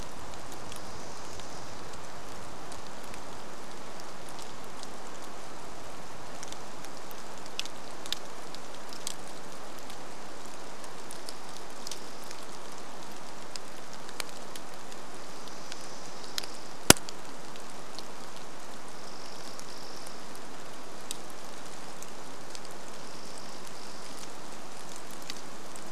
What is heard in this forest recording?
rain, Dark-eyed Junco song